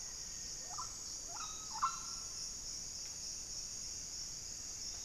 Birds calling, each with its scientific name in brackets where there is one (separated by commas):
Black-faced Antthrush (Formicarius analis), Mealy Parrot (Amazona farinosa)